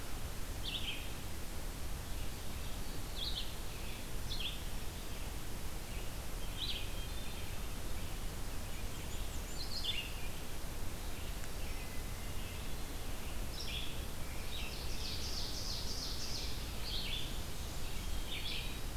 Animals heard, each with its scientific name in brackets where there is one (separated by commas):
Ovenbird (Seiurus aurocapilla), Blackburnian Warbler (Setophaga fusca), Red-eyed Vireo (Vireo olivaceus), Hermit Thrush (Catharus guttatus)